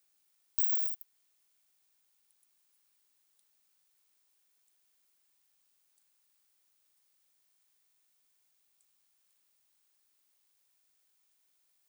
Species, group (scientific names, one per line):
Isophya modestior
Orthoptera